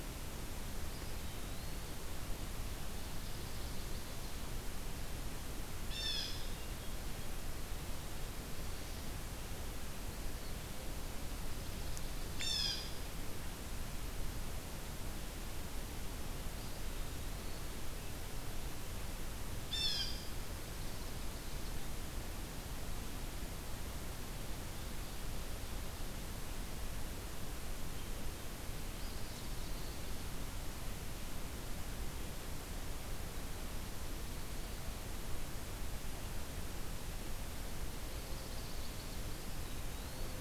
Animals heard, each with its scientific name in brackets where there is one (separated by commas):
Blue Jay (Cyanocitta cristata), Eastern Wood-Pewee (Contopus virens), Chestnut-sided Warbler (Setophaga pensylvanica), Ovenbird (Seiurus aurocapilla)